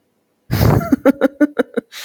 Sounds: Laughter